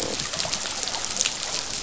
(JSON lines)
{"label": "biophony, croak", "recorder": "SoundTrap 500"}